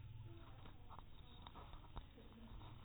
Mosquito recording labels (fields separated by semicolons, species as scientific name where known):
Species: mosquito; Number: one; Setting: cup